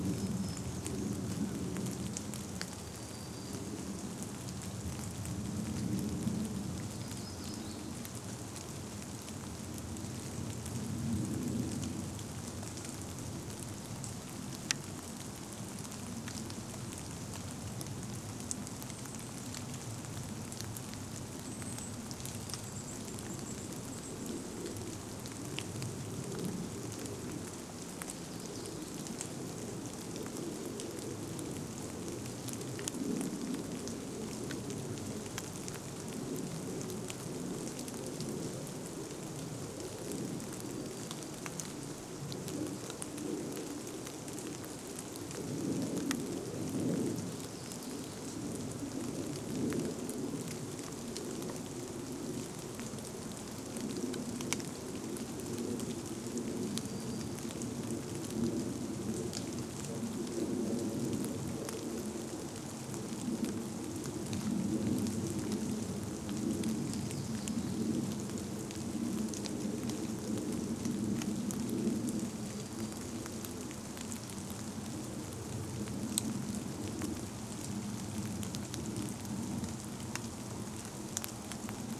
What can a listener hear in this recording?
Common Raven call, warbler song, airplane, rain, Golden-crowned Kinglet call, Golden-crowned Kinglet song